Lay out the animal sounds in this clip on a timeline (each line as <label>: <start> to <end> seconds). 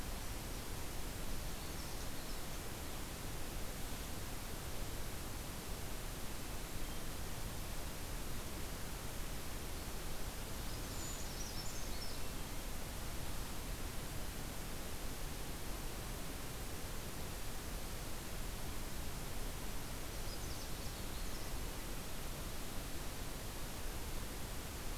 Canada Warbler (Cardellina canadensis): 1.1 to 2.7 seconds
Canada Warbler (Cardellina canadensis): 10.6 to 12.3 seconds
Brown Creeper (Certhia americana): 10.9 to 12.1 seconds
Canada Warbler (Cardellina canadensis): 20.0 to 21.6 seconds